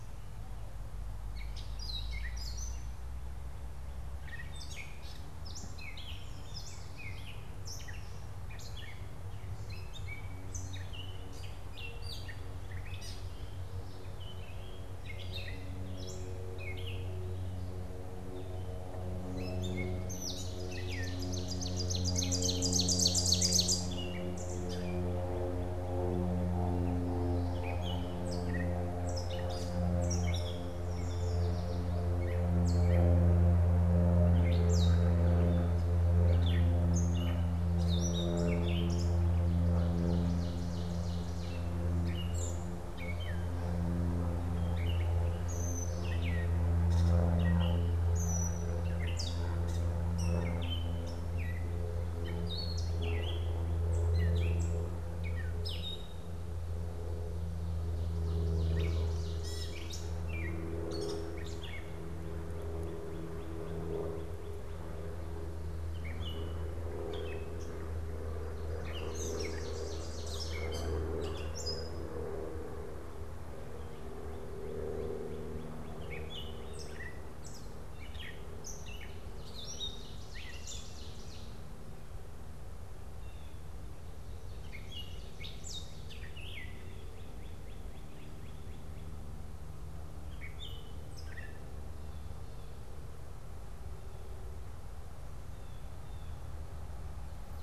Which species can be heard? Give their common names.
Gray Catbird, Yellow Warbler, Ovenbird, Northern Cardinal